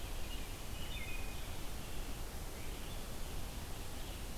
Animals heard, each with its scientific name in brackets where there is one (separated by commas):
Red-eyed Vireo (Vireo olivaceus), American Robin (Turdus migratorius), Wood Thrush (Hylocichla mustelina)